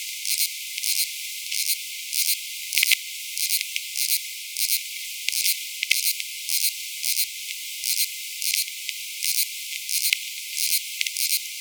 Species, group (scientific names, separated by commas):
Incertana incerta, Orthoptera